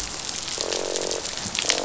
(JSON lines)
{"label": "biophony, croak", "recorder": "SoundTrap 500"}